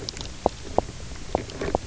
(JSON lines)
{"label": "biophony, knock croak", "recorder": "SoundTrap 300"}